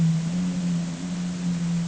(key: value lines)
label: anthrophony, boat engine
recorder: HydroMoth